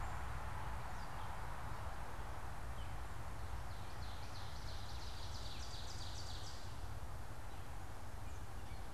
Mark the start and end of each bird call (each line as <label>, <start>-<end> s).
Ovenbird (Seiurus aurocapilla), 3.6-6.9 s